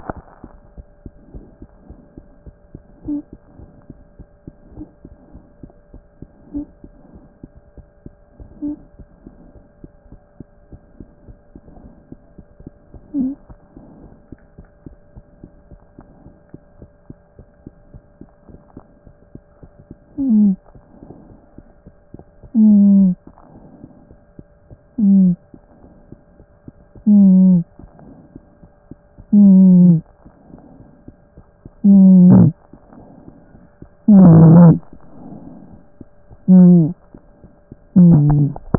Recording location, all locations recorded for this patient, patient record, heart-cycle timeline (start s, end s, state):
mitral valve (MV)
aortic valve (AV)+mitral valve (MV)
#Age: Infant
#Sex: Male
#Height: nan
#Weight: 8.0 kg
#Pregnancy status: False
#Murmur: Absent
#Murmur locations: nan
#Most audible location: nan
#Systolic murmur timing: nan
#Systolic murmur shape: nan
#Systolic murmur grading: nan
#Systolic murmur pitch: nan
#Systolic murmur quality: nan
#Diastolic murmur timing: nan
#Diastolic murmur shape: nan
#Diastolic murmur grading: nan
#Diastolic murmur pitch: nan
#Diastolic murmur quality: nan
#Outcome: Abnormal
#Campaign: 2014 screening campaign
0.00	13.92	unannotated
13.92	14.02	diastole
14.02	14.12	S1
14.12	14.30	systole
14.30	14.38	S2
14.38	14.58	diastole
14.58	14.70	S1
14.70	14.86	systole
14.86	14.96	S2
14.96	15.16	diastole
15.16	15.26	S1
15.26	15.42	systole
15.42	15.52	S2
15.52	15.70	diastole
15.70	15.80	S1
15.80	15.98	systole
15.98	16.06	S2
16.06	16.24	diastole
16.24	16.36	S1
16.36	16.52	systole
16.52	16.62	S2
16.62	16.80	diastole
16.80	16.90	S1
16.90	17.08	systole
17.08	17.18	S2
17.18	17.38	diastole
17.38	17.50	S1
17.50	17.64	systole
17.64	17.74	S2
17.74	17.92	diastole
17.92	18.04	S1
18.04	18.20	systole
18.20	18.30	S2
18.30	18.50	diastole
18.50	18.60	S1
18.60	18.76	systole
18.76	18.84	S2
18.84	19.06	diastole
19.06	19.16	S1
19.16	19.34	systole
19.34	19.44	S2
19.44	19.63	diastole
19.63	38.78	unannotated